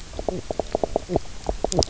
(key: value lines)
label: biophony, knock croak
recorder: SoundTrap 300